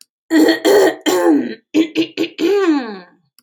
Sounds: Throat clearing